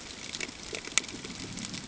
{"label": "ambient", "recorder": "HydroMoth"}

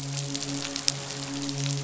{"label": "biophony, midshipman", "recorder": "SoundTrap 500"}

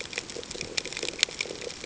{"label": "ambient", "recorder": "HydroMoth"}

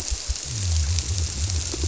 {"label": "biophony", "recorder": "SoundTrap 300"}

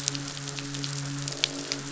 {"label": "biophony, croak", "recorder": "SoundTrap 500"}
{"label": "biophony, midshipman", "recorder": "SoundTrap 500"}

